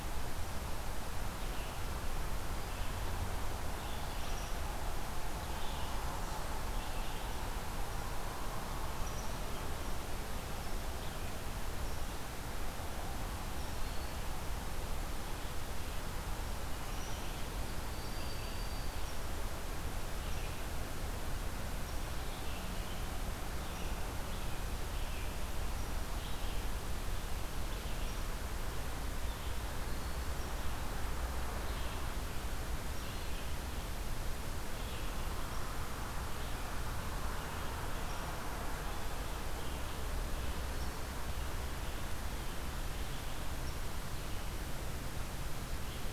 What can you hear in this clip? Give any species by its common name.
Red-eyed Vireo, Broad-winged Hawk